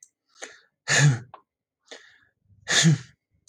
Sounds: Sneeze